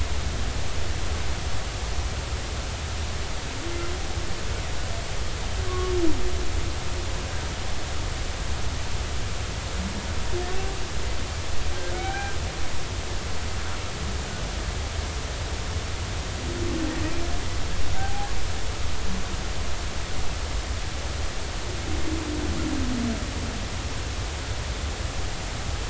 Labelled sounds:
5.7	5.9	humpback whale, 1.0 to 1.2 kHz
11.9	13.3	humpback whale, 0.80 to 2.4 kHz
18.9	19.3	humpback whale, 0.80 to 0.86 kHz

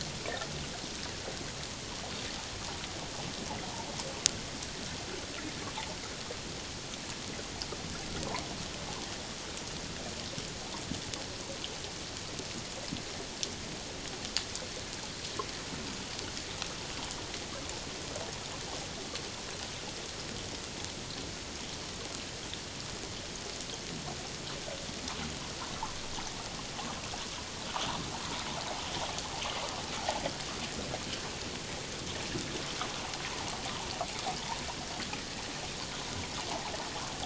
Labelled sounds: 36.5	36.7	water noise, 0.78 to 1.1 kHz

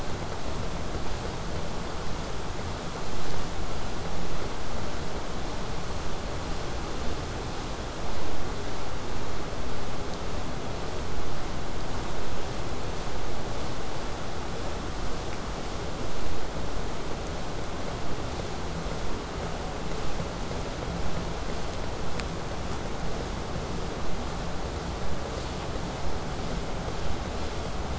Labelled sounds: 23.0	27.9	vessel noise, 0 to 8.0 kHz

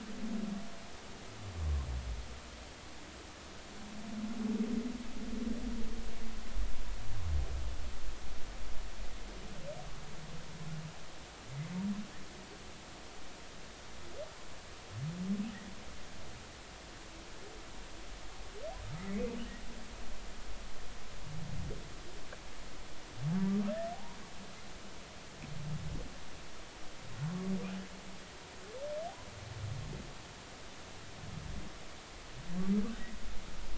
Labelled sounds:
23.9	24.2	humpback whale, 0.80 to 1.1 kHz

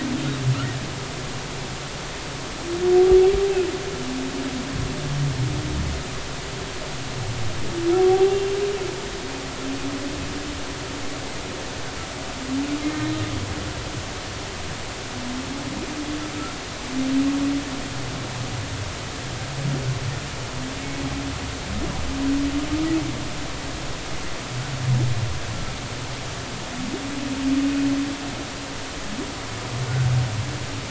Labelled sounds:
8.1	8.4	humpback whale, 0.80 to 0.83 kHz
12.9	13.3	humpback whale, 1.8 to 3.8 kHz

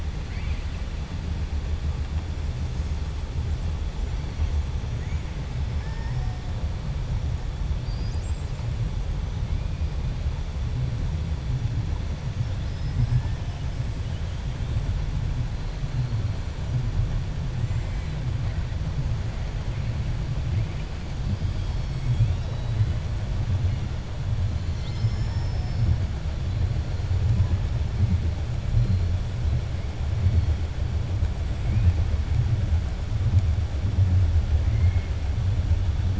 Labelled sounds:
0.2	0.7	killer whale, 1.4 to 4.7 kHz
24.5	25.9	killer whale, 0.94 to 7.2 kHz
34.6	35.1	killer whale, 1.1 to 3.2 kHz

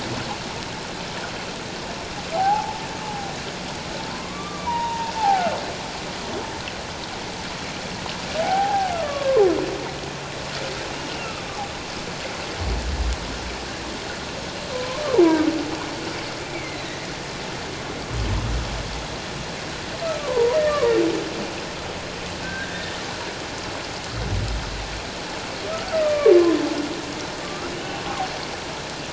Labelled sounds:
2.3	2.8	humpback whale, 0.78 to 1.0 kHz
4.1	5.6	humpback whale, 0.78 to 1.6 kHz
8.4	9.4	humpback whale, 0.78 to 1.4 kHz
11.2	11.5	humpback whale, 1.2 to 1.4 kHz
14.7	15.0	humpback whale, 0.97 to 1.1 kHz
16.5	17.0	humpback whale, 2.0 to 4.2 kHz
20.2	20.8	humpback whale, 0.84 to 1.9 kHz
22.4	22.9	humpback whale, 1.5 to 1.9 kHz
26.0	26.6	humpback whale, 0.97 to 2.5 kHz
27.4	27.7	humpback whale, 1.1 to 1.5 kHz

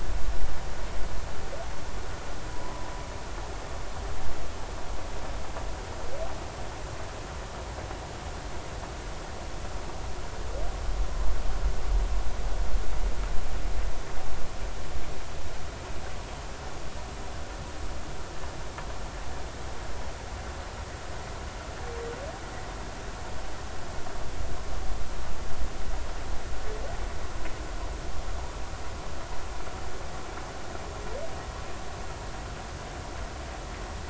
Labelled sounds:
2.5	2.7	humpback whale, 0.93 to 1.1 kHz

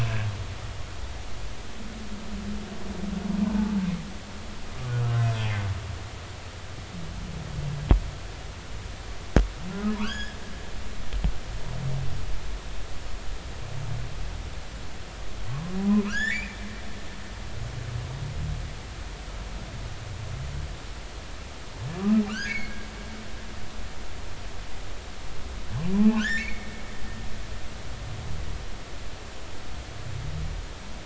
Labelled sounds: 3.5	3.8	humpback whale, 0.80 to 0.93 kHz
10.0	10.4	humpback whale, 0.90 to 5.3 kHz
15.5	16.6	humpback whale, 0.96 to 2.6 kHz
22.0	22.8	humpback whale, 1.1 to 5.1 kHz
25.9	26.7	humpback whale, 0.80 to 3.3 kHz

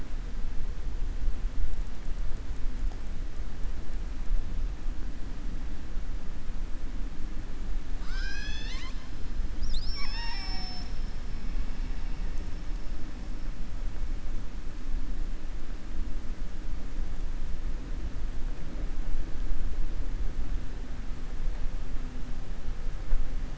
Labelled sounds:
7.9	9.0	killer whale, southern resident, 1.0 to 7.6 kHz

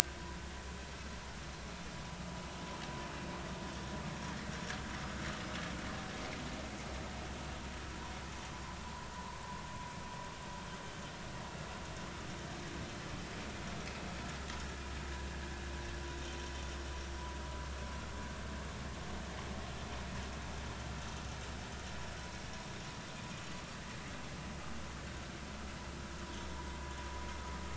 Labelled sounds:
8.5	9.4	vessel noise, 0.86 to 1.2 kHz

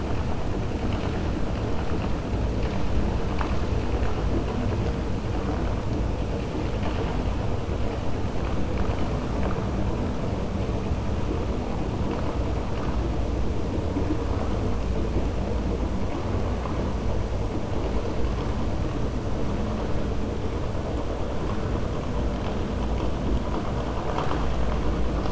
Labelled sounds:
24.0	24.6	vessel noise, 0.65 to 6.1 kHz

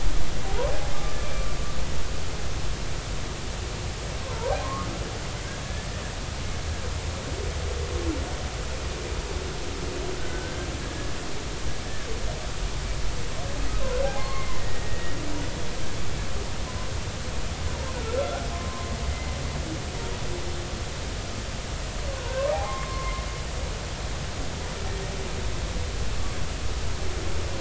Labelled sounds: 1.2	1.5	humpback whale, 2.3 to 2.4 kHz
4.2	4.9	humpback whale, 0.86 to 1.3 kHz
10.2	10.7	humpback whale, 1.4 to 1.6 kHz
14.2	15.2	humpback whale, 0.99 to 2.2 kHz
18.2	18.9	humpback whale, 0.96 to 1.5 kHz
22.5	23.2	humpback whale, 0.80 to 2.2 kHz

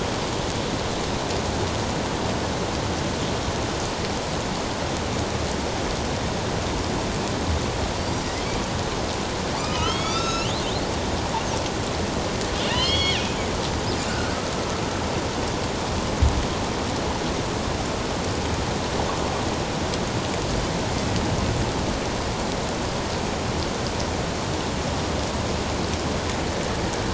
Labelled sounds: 9.5	10.5	killer whale, northern resident, A clan, AB subclan, 1.1 to 7.0 kHz
12.6	13.2	killer whale, northern resident, A clan, AB subclan, 1.7 to 5.2 kHz
14.1	14.4	killer whale, northern resident, A clan, AB subclan, 1.4 to 1.6 kHz

